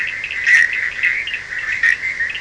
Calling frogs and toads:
Boana bischoffi, Sphaenorhynchus surdus

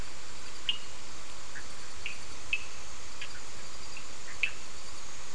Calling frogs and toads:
Sphaenorhynchus surdus, Boana bischoffi

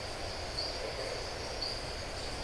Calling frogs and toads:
Adenomera marmorata

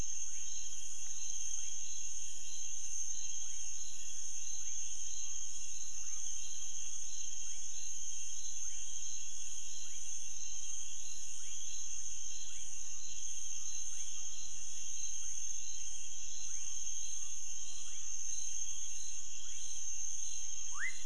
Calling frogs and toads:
Leptodactylus fuscus

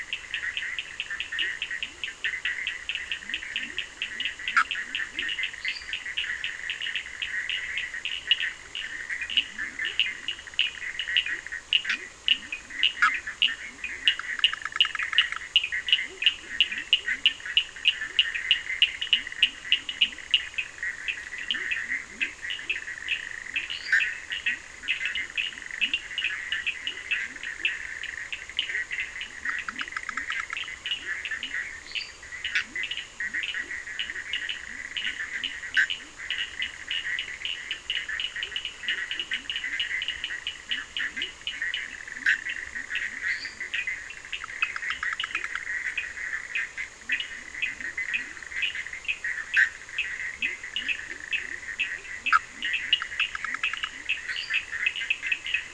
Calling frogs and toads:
Boana bischoffi, Sphaenorhynchus surdus, Leptodactylus latrans, Dendropsophus minutus

